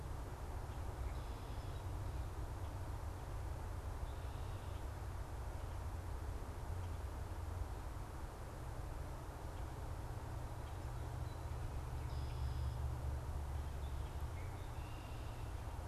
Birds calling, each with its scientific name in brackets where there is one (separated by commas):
Red-winged Blackbird (Agelaius phoeniceus)